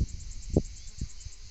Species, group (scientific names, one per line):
Tettigettalna argentata
Cicadidae